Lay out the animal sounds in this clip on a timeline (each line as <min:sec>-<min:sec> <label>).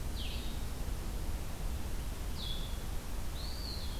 0:00.0-0:04.0 Blue-headed Vireo (Vireo solitarius)
0:03.3-0:04.0 Eastern Wood-Pewee (Contopus virens)